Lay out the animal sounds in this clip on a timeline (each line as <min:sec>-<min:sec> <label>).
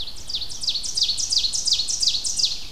0:00.0-0:02.7 Ovenbird (Seiurus aurocapilla)